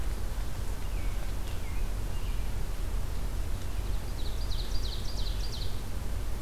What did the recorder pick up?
American Robin, Ovenbird